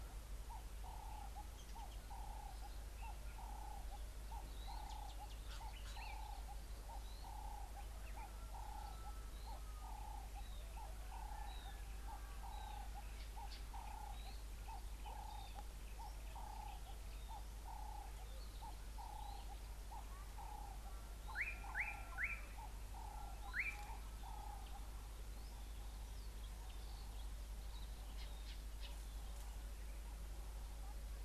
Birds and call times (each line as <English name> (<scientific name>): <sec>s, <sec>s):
Ring-necked Dove (Streptopelia capicola): 7.2s, 15.1s
Pale White-eye (Zosterops flavilateralis): 11.6s
Slate-colored Boubou (Laniarius funebris): 21.8s, 23.6s